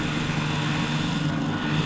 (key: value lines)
label: anthrophony, boat engine
recorder: SoundTrap 500